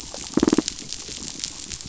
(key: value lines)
label: biophony
recorder: SoundTrap 500